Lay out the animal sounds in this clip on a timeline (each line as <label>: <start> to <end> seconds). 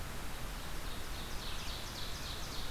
Ovenbird (Seiurus aurocapilla): 0.0 to 2.7 seconds